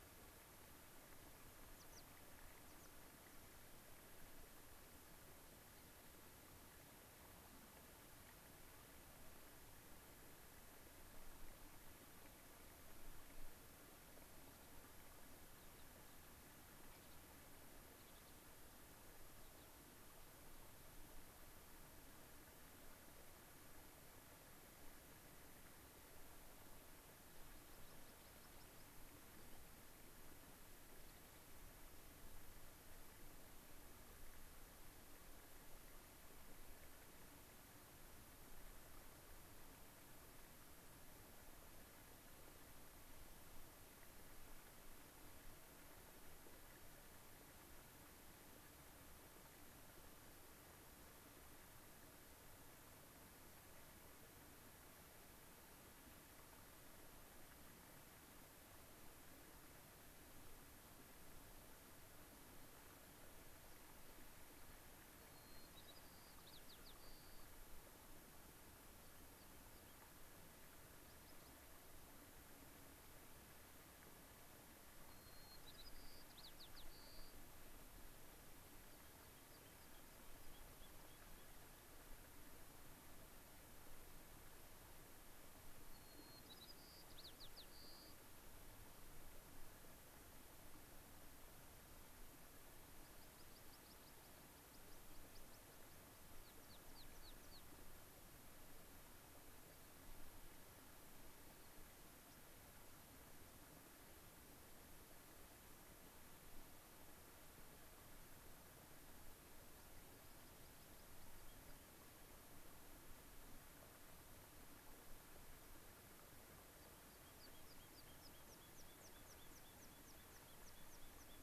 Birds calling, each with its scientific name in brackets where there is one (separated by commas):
Gray-crowned Rosy-Finch (Leucosticte tephrocotis), White-crowned Sparrow (Zonotrichia leucophrys), American Pipit (Anthus rubescens), Rock Wren (Salpinctes obsoletus)